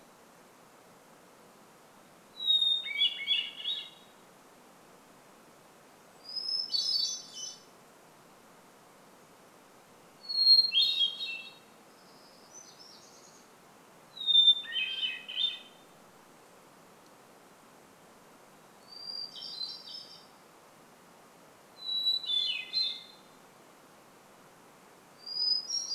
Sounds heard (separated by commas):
Hermit Thrush song, warbler song